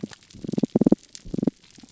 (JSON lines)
{"label": "biophony, pulse", "recorder": "SoundTrap 300"}